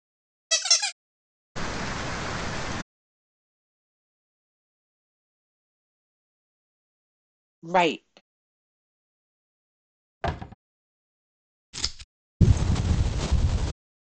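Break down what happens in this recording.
- 0.5 s: squeaking is heard
- 1.6 s: you can hear rain on a surface
- 7.7 s: someone says "Right."
- 10.2 s: a wooden cupboard closes
- 11.7 s: the sound of scissors is audible
- 12.4 s: wind can be heard

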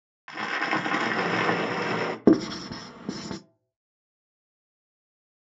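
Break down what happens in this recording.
- 0.3 s: crackling can be heard
- 1.2 s: the sound of cooking
- 2.2 s: you can hear writing

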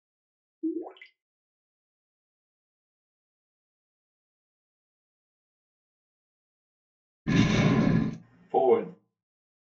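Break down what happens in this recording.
- 0.6 s: quiet gurgling can be heard
- 7.3 s: booming is heard
- 8.5 s: a voice says "Forward"

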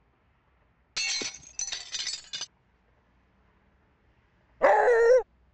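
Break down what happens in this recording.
- 1.0 s: glass shatters
- 4.6 s: a dog can be heard

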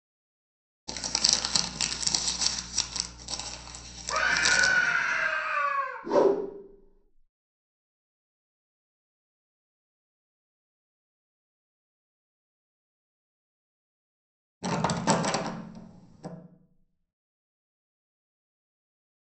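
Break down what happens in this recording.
- 0.9 s: there is crumpling
- 4.1 s: someone screams
- 6.0 s: whooshing is audible
- 14.6 s: you can hear the sound of wood

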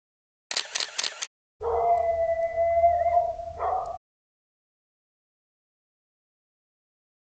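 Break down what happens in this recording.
- 0.5 s: the sound of a camera can be heard
- 1.6 s: you can hear a dog

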